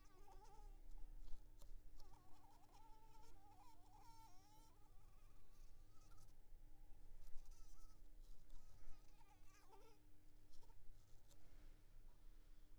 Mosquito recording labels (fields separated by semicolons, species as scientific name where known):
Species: Anopheles arabiensis; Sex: female; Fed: blood-fed; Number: one; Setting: cup